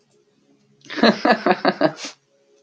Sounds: Laughter